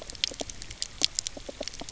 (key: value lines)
label: biophony
recorder: SoundTrap 300